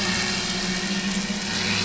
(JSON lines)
{"label": "anthrophony, boat engine", "recorder": "SoundTrap 500"}